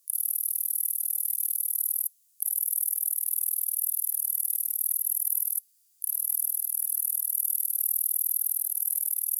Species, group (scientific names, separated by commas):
Tettigonia longispina, Orthoptera